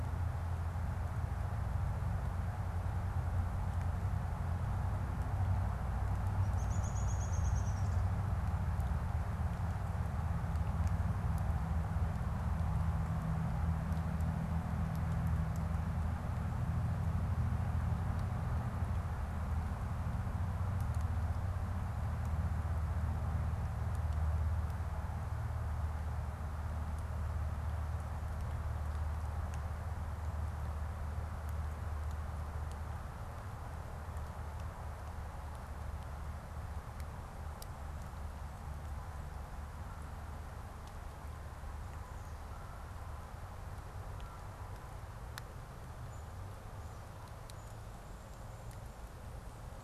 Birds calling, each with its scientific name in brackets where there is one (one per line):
Downy Woodpecker (Dryobates pubescens)